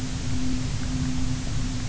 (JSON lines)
{"label": "anthrophony, boat engine", "recorder": "SoundTrap 300"}